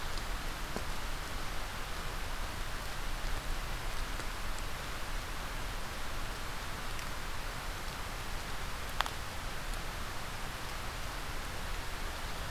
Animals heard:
forest ambience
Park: Marsh-Billings-Rockefeller National Historical Park